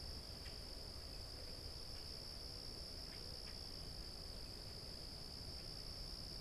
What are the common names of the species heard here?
Common Grackle